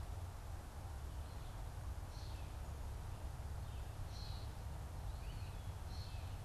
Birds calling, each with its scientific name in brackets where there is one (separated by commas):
Gray Catbird (Dumetella carolinensis)